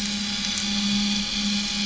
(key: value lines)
label: anthrophony, boat engine
recorder: SoundTrap 500